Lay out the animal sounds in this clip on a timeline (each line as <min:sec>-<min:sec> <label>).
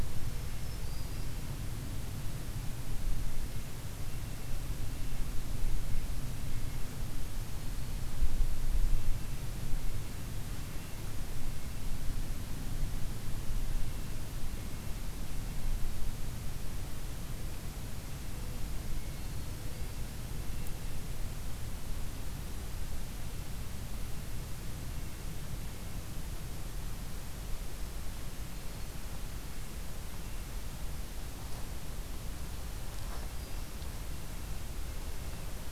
0:00.0-0:01.4 Black-throated Green Warbler (Setophaga virens)
0:03.9-0:07.2 Red-breasted Nuthatch (Sitta canadensis)
0:09.7-0:12.6 Red-breasted Nuthatch (Sitta canadensis)
0:13.6-0:15.9 Red-breasted Nuthatch (Sitta canadensis)
0:18.9-0:20.1 Black-throated Green Warbler (Setophaga virens)
0:20.1-0:21.7 Red-breasted Nuthatch (Sitta canadensis)
0:29.3-0:30.8 Red-breasted Nuthatch (Sitta canadensis)
0:32.8-0:34.1 Black-throated Green Warbler (Setophaga virens)
0:34.0-0:35.7 Red-breasted Nuthatch (Sitta canadensis)